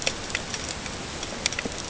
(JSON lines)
{"label": "ambient", "recorder": "HydroMoth"}